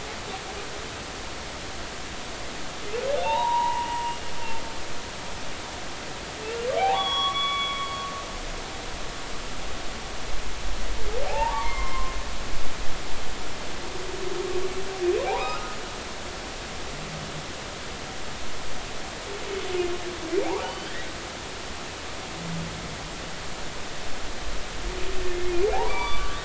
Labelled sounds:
3.2	3.9	humpback whale, 0.80 to 4.0 kHz
6.8	7.9	humpback whale, 0.80 to 3.5 kHz
11.3	12.2	humpback whale, 0.80 to 2.3 kHz
15.3	15.8	humpback whale, 0.80 to 1.4 kHz
20.6	20.9	humpback whale, 2.9 to 3.1 kHz
25.7	26.4	humpback whale, 0.80 to 4.7 kHz

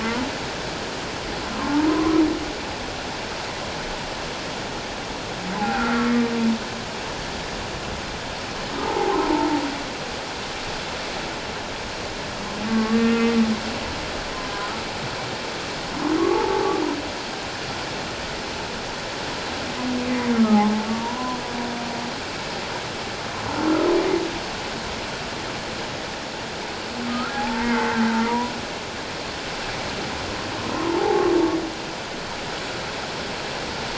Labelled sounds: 1.6	2.2	humpback whale, 0.81 to 1.2 kHz
5.6	6.1	humpback whale, 0.78 to 2.6 kHz
8.8	9.5	humpback whale, 0.78 to 1.1 kHz
12.7	13.4	humpback whale, 1.1 to 2.2 kHz
16.2	16.7	humpback whale, 0.78 to 1.2 kHz
20.3	21.4	humpback whale, 0.78 to 1.4 kHz
27.1	28.5	humpback whale, 0.78 to 2.2 kHz
30.7	31.3	humpback whale, 0.78 to 1.1 kHz

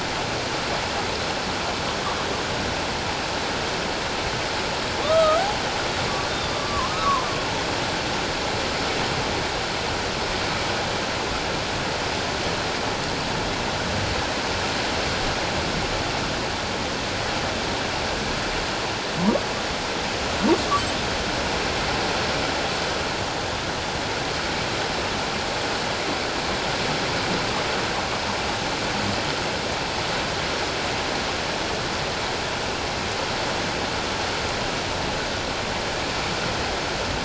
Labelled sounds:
5.0	5.4	humpback whale, 1.0 to 1.4 kHz
6.3	7.3	humpback whale, 0.91 to 3.7 kHz

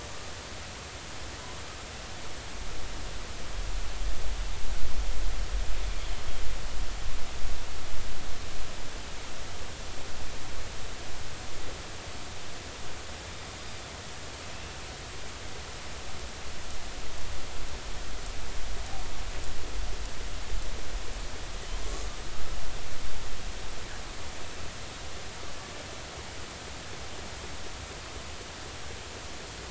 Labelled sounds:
14.5	14.8	killer whale, northern resident, 2.5 to 2.8 kHz
21.8	22.1	killer whale, northern resident, A clan, AB subclan, call N16, 1.0 to 1.2 kHz

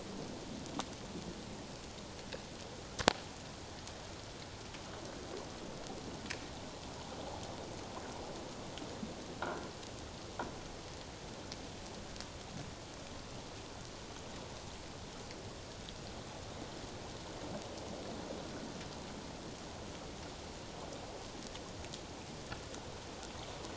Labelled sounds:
9.4	9.7	humpback whale, 1.3 to 1.7 kHz

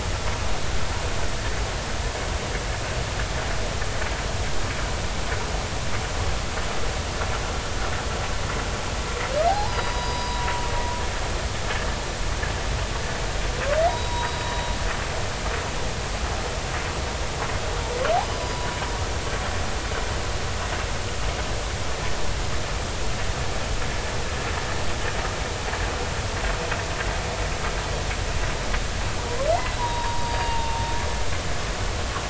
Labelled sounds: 9.5	10.5	humpback whale, 0.80 to 5.0 kHz
13.9	14.4	humpback whale, 0.90 to 3.9 kHz
18.2	18.6	humpback whale, 4.8 to 5.1 kHz
29.6	30.8	humpback whale, 0.83 to 4.8 kHz

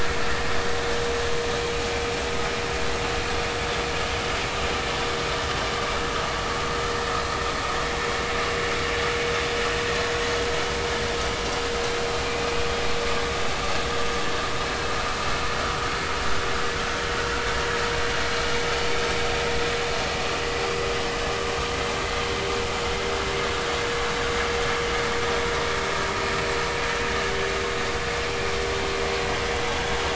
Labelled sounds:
12.2	12.5	vessel noise, 2.3 to 2.6 kHz

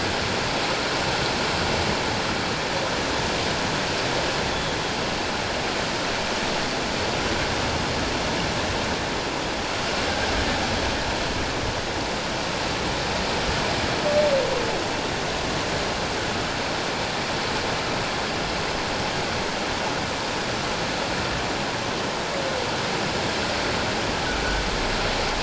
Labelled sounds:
4.5	4.8	humpback whale, 3.3 to 3.5 kHz

